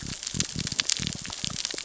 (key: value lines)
label: biophony
recorder: SoundTrap 600 or HydroMoth